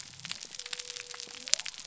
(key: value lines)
label: biophony
recorder: SoundTrap 300